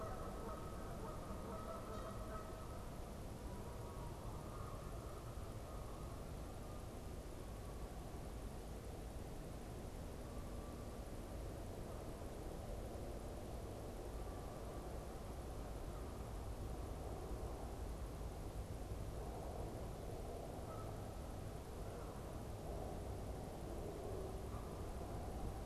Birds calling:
Canada Goose (Branta canadensis)

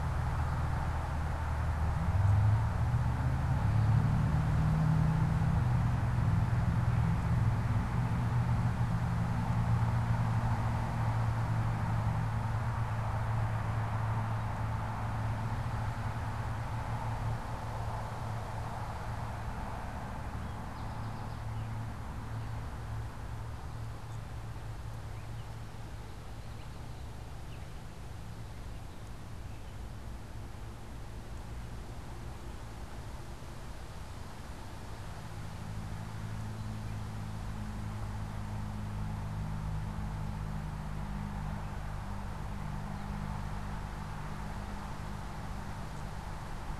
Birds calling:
American Goldfinch (Spinus tristis)
unidentified bird

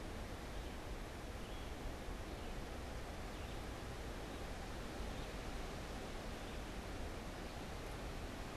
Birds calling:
Red-eyed Vireo (Vireo olivaceus)

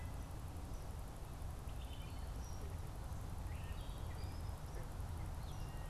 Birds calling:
Eastern Kingbird (Tyrannus tyrannus)
Wood Thrush (Hylocichla mustelina)

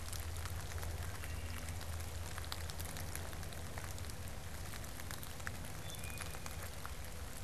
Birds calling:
Wood Thrush (Hylocichla mustelina)

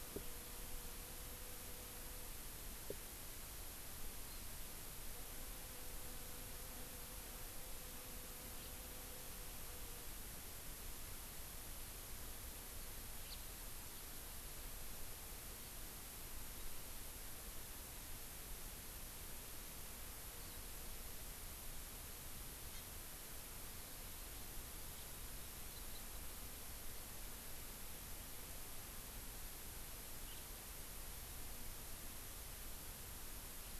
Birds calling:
Hawaii Amakihi (Chlorodrepanis virens)
House Finch (Haemorhous mexicanus)

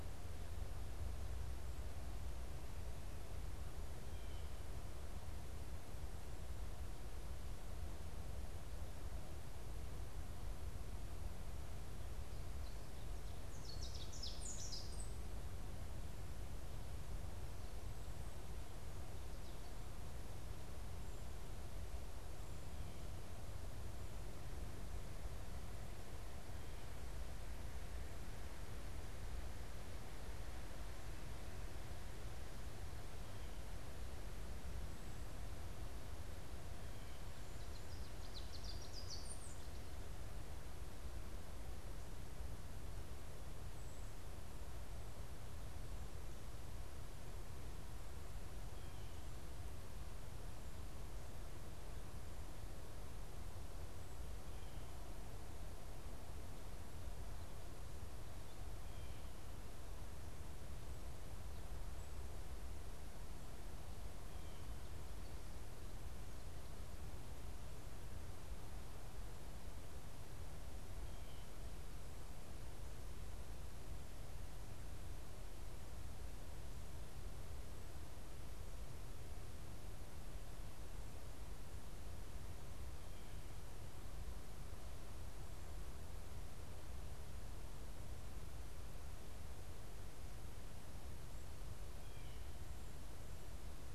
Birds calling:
Ovenbird (Seiurus aurocapilla)

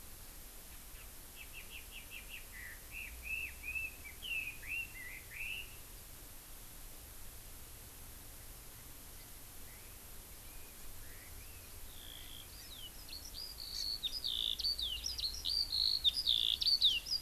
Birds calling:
Red-billed Leiothrix (Leiothrix lutea)
Eurasian Skylark (Alauda arvensis)
Hawaii Amakihi (Chlorodrepanis virens)

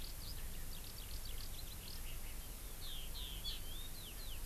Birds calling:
Eurasian Skylark (Alauda arvensis)
Hawaii Amakihi (Chlorodrepanis virens)

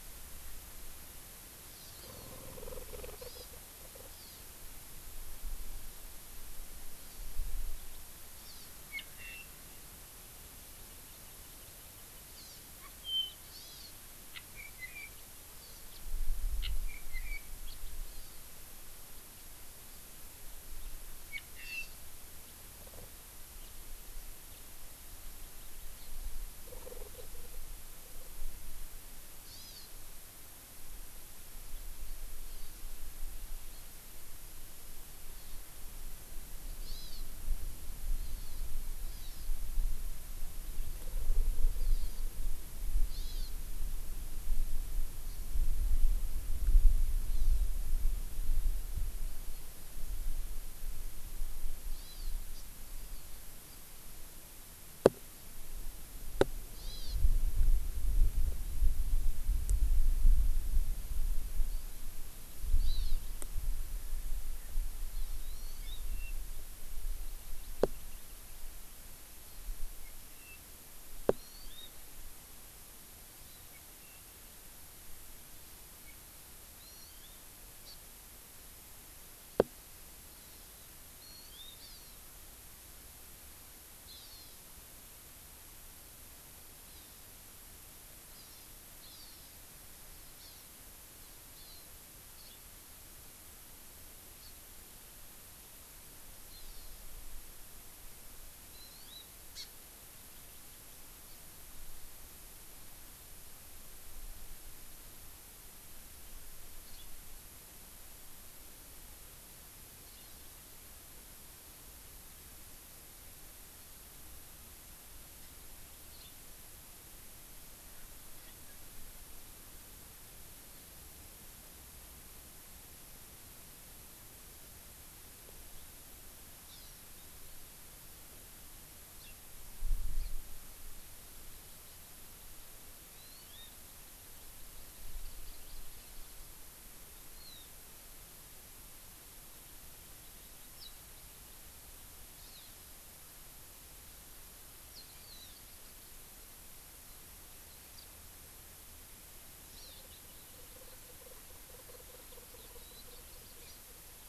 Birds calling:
Apapane (Himatione sanguinea)
Hawaii Amakihi (Chlorodrepanis virens)

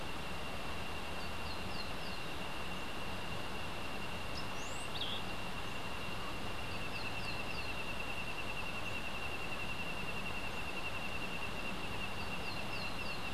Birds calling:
Cabanis's Ground-Sparrow (Melozone cabanisi)

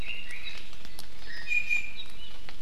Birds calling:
Red-billed Leiothrix (Leiothrix lutea)
Iiwi (Drepanis coccinea)

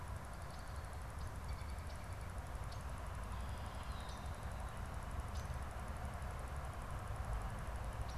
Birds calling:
American Robin (Turdus migratorius)

